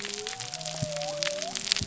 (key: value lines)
label: biophony
recorder: SoundTrap 300